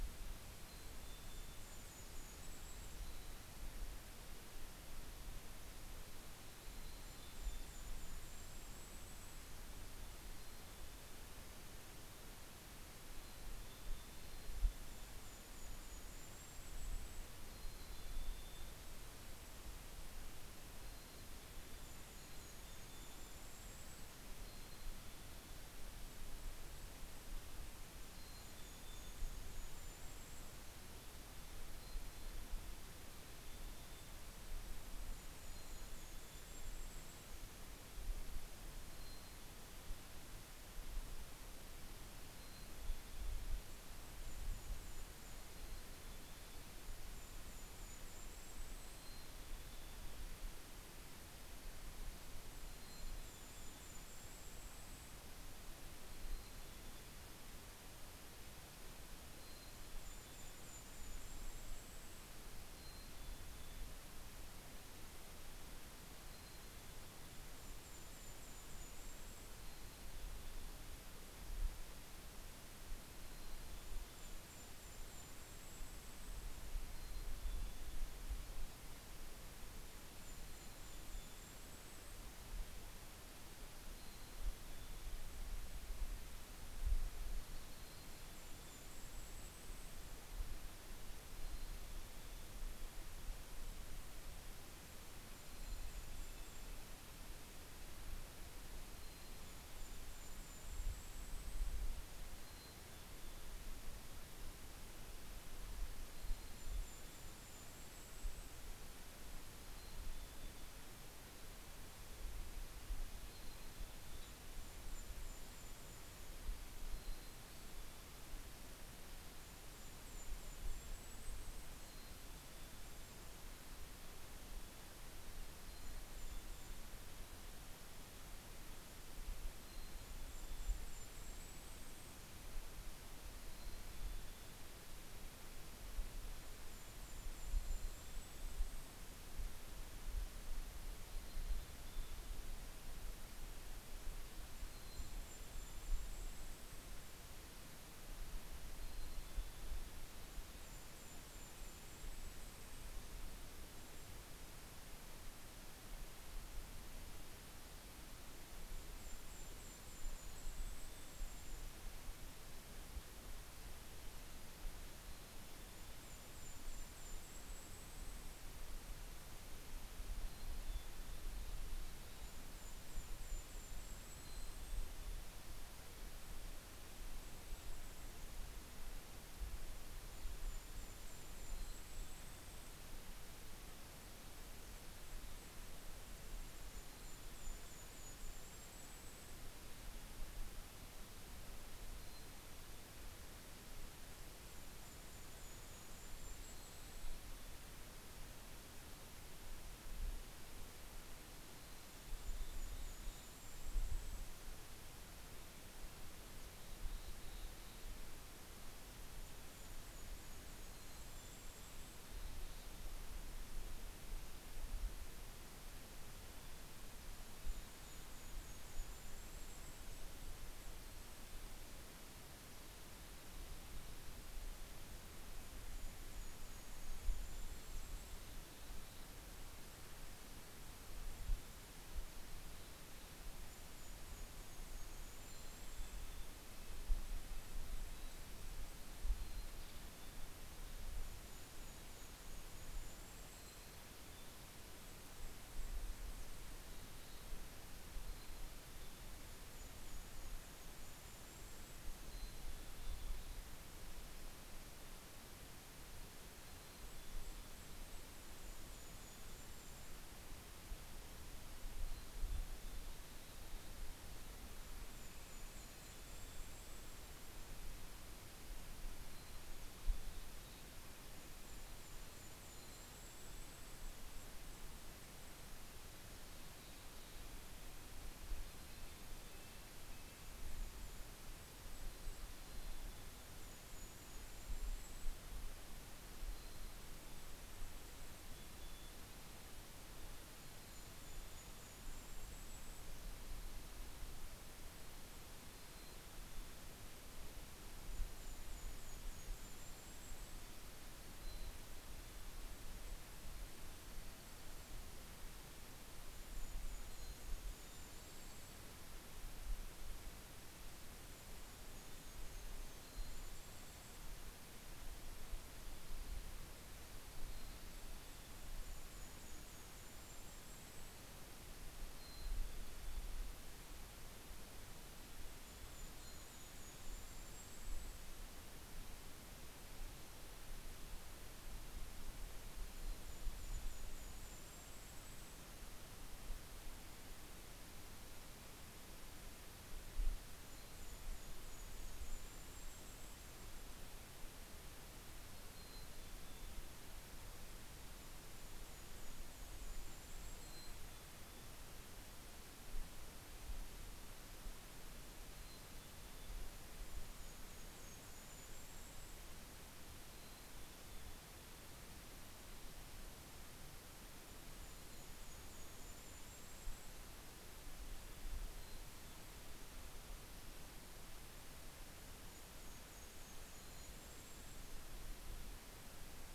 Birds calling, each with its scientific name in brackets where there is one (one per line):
Red-breasted Nuthatch (Sitta canadensis)
Mountain Chickadee (Poecile gambeli)
Western Tanager (Piranga ludoviciana)
Golden-crowned Kinglet (Regulus satrapa)